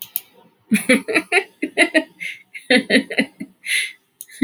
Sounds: Laughter